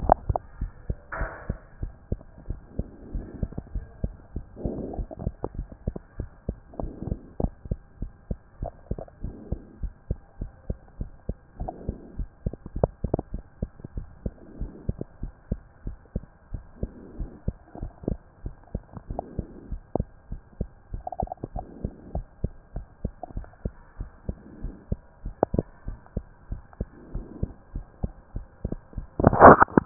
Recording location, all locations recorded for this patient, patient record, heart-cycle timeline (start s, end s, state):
mitral valve (MV)
aortic valve (AV)+pulmonary valve (PV)+tricuspid valve (TV)+mitral valve (MV)
#Age: Child
#Sex: Female
#Height: nan
#Weight: 24.2 kg
#Pregnancy status: False
#Murmur: Absent
#Murmur locations: nan
#Most audible location: nan
#Systolic murmur timing: nan
#Systolic murmur shape: nan
#Systolic murmur grading: nan
#Systolic murmur pitch: nan
#Systolic murmur quality: nan
#Diastolic murmur timing: nan
#Diastolic murmur shape: nan
#Diastolic murmur grading: nan
#Diastolic murmur pitch: nan
#Diastolic murmur quality: nan
#Outcome: Normal
#Campaign: 2014 screening campaign
0.20	0.28	systole
0.28	0.40	S2
0.40	0.58	diastole
0.58	0.72	S1
0.72	0.84	systole
0.84	0.98	S2
0.98	1.18	diastole
1.18	1.32	S1
1.32	1.46	systole
1.46	1.60	S2
1.60	1.80	diastole
1.80	1.94	S1
1.94	2.08	systole
2.08	2.22	S2
2.22	2.46	diastole
2.46	2.60	S1
2.60	2.76	systole
2.76	2.90	S2
2.90	3.12	diastole
3.12	3.26	S1
3.26	3.40	systole
3.40	3.54	S2
3.54	3.72	diastole
3.72	3.86	S1
3.86	4.00	systole
4.00	4.12	S2
4.12	4.34	diastole
4.34	4.48	S1
4.48	4.62	systole
4.62	4.76	S2
4.76	4.96	diastole
4.96	5.10	S1
5.10	5.22	systole
5.22	5.34	S2
5.34	5.56	diastole
5.56	5.70	S1
5.70	5.84	systole
5.84	5.94	S2
5.94	6.16	diastole
6.16	6.30	S1
6.30	6.44	systole
6.44	6.56	S2
6.56	6.78	diastole
6.78	6.92	S1
6.92	7.04	systole
7.04	7.18	S2
7.18	7.38	diastole
7.38	7.52	S1
7.52	7.66	systole
7.66	7.78	S2
7.78	8.00	diastole
8.00	8.12	S1
8.12	8.28	systole
8.28	8.38	S2
8.38	8.60	diastole
8.60	8.72	S1
8.72	8.88	systole
8.88	8.98	S2
8.98	9.22	diastole
9.22	9.36	S1
9.36	9.50	systole
9.50	9.60	S2
9.60	9.80	diastole
9.80	9.92	S1
9.92	10.06	systole
10.06	10.20	S2
10.20	10.40	diastole
10.40	10.52	S1
10.52	10.66	systole
10.66	10.78	S2
10.78	10.98	diastole
10.98	11.12	S1
11.12	11.28	systole
11.28	11.38	S2
11.38	11.58	diastole
11.58	11.72	S1
11.72	11.86	systole
11.86	11.96	S2
11.96	12.18	diastole
12.18	12.28	S1
12.28	12.42	systole
12.42	12.54	S2
12.54	12.74	diastole
12.74	12.90	S1
12.90	13.00	systole
13.00	13.12	S2
13.12	13.32	diastole
13.32	13.44	S1
13.44	13.58	systole
13.58	13.70	S2
13.70	13.94	diastole
13.94	14.08	S1
14.08	14.24	systole
14.24	14.34	S2
14.34	14.56	diastole
14.56	14.70	S1
14.70	14.86	systole
14.86	14.96	S2
14.96	15.20	diastole
15.20	15.32	S1
15.32	15.48	systole
15.48	15.60	S2
15.60	15.84	diastole
15.84	15.96	S1
15.96	16.12	systole
16.12	16.24	S2
16.24	16.52	diastole
16.52	16.66	S1
16.66	16.80	systole
16.80	16.90	S2
16.90	17.14	diastole
17.14	17.28	S1
17.28	17.44	systole
17.44	17.58	S2
17.58	17.80	diastole
17.80	17.92	S1
17.92	18.08	systole
18.08	18.20	S2
18.20	18.44	diastole
18.44	18.54	S1
18.54	18.70	systole
18.70	18.82	S2
18.82	19.08	diastole
19.08	19.18	S1
19.18	19.36	systole
19.36	19.46	S2
19.46	19.70	diastole
19.70	19.82	S1
19.82	19.96	systole
19.96	20.08	S2
20.08	20.30	diastole
20.30	20.42	S1
20.42	20.58	systole
20.58	20.70	S2
20.70	20.92	diastole
20.92	21.04	S1
21.04	21.20	systole
21.20	21.30	S2
21.30	21.54	diastole
21.54	21.68	S1
21.68	21.82	systole
21.82	21.92	S2
21.92	22.12	diastole
22.12	22.26	S1
22.26	22.42	systole
22.42	22.54	S2
22.54	22.74	diastole
22.74	22.86	S1
22.86	23.00	systole
23.00	23.12	S2
23.12	23.34	diastole
23.34	23.48	S1
23.48	23.64	systole
23.64	23.76	S2
23.76	23.98	diastole
23.98	24.10	S1
24.10	24.26	systole
24.26	24.38	S2
24.38	24.62	diastole
24.62	24.74	S1
24.74	24.88	systole
24.88	25.02	S2
25.02	25.24	diastole
25.24	25.36	S1
25.36	25.52	systole
25.52	25.66	S2
25.66	25.86	diastole
25.86	25.98	S1
25.98	26.12	systole
26.12	26.26	S2
26.26	26.50	diastole
26.50	26.62	S1
26.62	26.76	systole
26.76	26.90	S2
26.90	27.14	diastole
27.14	27.28	S1
27.28	27.40	systole
27.40	27.52	S2
27.52	27.74	diastole
27.74	27.86	S1
27.86	28.02	systole
28.02	28.14	S2
28.14	28.34	diastole
28.34	28.48	S1
28.48	28.72	systole
28.72	28.86	S2
28.86	29.16	diastole
29.16	29.34	S1
29.34	29.42	systole
29.42	29.58	S2
29.58	29.76	diastole
29.76	29.86	S1